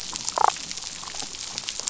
{"label": "biophony, damselfish", "recorder": "SoundTrap 500"}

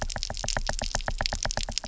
{"label": "biophony, knock", "recorder": "SoundTrap 300"}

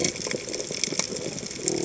{"label": "biophony", "recorder": "HydroMoth"}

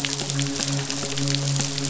{"label": "biophony, midshipman", "recorder": "SoundTrap 500"}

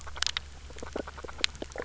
{"label": "biophony, grazing", "recorder": "SoundTrap 300"}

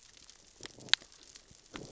{"label": "biophony, growl", "recorder": "SoundTrap 600 or HydroMoth"}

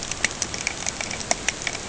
{"label": "ambient", "recorder": "HydroMoth"}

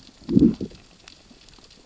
{"label": "biophony, growl", "recorder": "SoundTrap 600 or HydroMoth"}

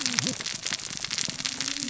{"label": "biophony, cascading saw", "recorder": "SoundTrap 600 or HydroMoth"}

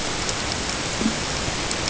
{"label": "ambient", "recorder": "HydroMoth"}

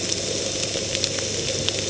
{"label": "ambient", "recorder": "HydroMoth"}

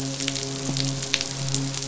{"label": "biophony, midshipman", "recorder": "SoundTrap 500"}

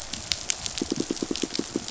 {"label": "biophony, pulse", "recorder": "SoundTrap 500"}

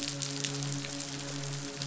{"label": "biophony, midshipman", "recorder": "SoundTrap 500"}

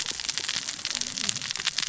{"label": "biophony, cascading saw", "recorder": "SoundTrap 600 or HydroMoth"}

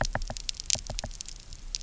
{"label": "biophony, knock", "recorder": "SoundTrap 300"}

